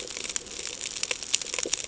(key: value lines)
label: ambient
recorder: HydroMoth